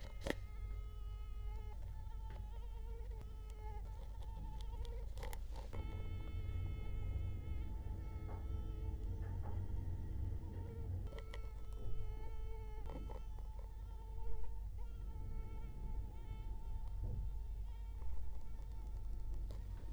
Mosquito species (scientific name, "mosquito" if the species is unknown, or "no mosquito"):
Culex quinquefasciatus